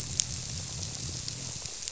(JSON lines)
{"label": "biophony", "recorder": "SoundTrap 300"}